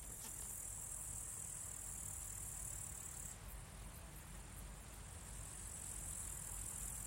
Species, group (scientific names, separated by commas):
Tettigonia cantans, Orthoptera